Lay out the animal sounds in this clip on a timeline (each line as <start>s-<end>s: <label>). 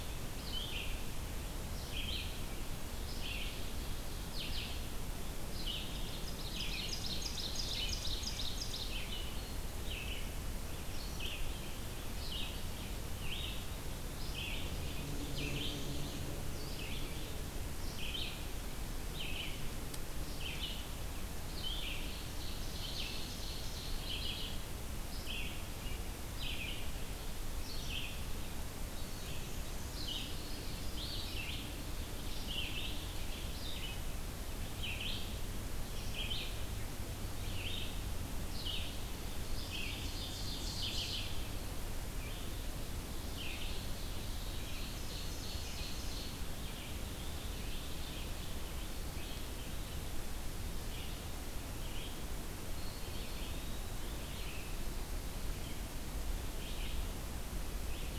0.0s-45.0s: Red-eyed Vireo (Vireo olivaceus)
5.8s-9.2s: Ovenbird (Seiurus aurocapilla)
14.8s-16.4s: Black-and-white Warbler (Mniotilta varia)
22.2s-24.1s: Ovenbird (Seiurus aurocapilla)
23.6s-24.7s: Mourning Warbler (Geothlypis philadelphia)
28.9s-30.4s: Black-and-white Warbler (Mniotilta varia)
39.2s-41.3s: Ovenbird (Seiurus aurocapilla)
40.4s-41.6s: Mourning Warbler (Geothlypis philadelphia)
44.4s-46.6s: Ovenbird (Seiurus aurocapilla)
46.5s-58.2s: Red-eyed Vireo (Vireo olivaceus)
52.6s-54.3s: Eastern Wood-Pewee (Contopus virens)